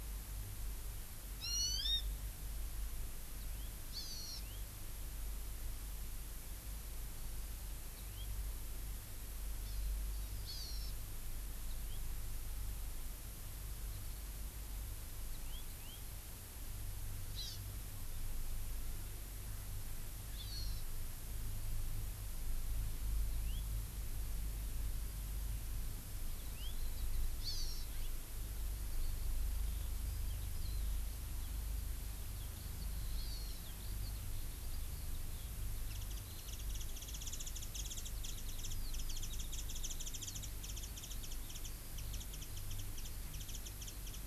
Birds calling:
House Finch (Haemorhous mexicanus)
Warbling White-eye (Zosterops japonicus)
Hawaii Amakihi (Chlorodrepanis virens)

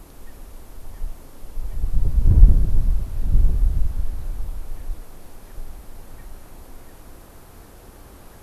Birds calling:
Erckel's Francolin (Pternistis erckelii)

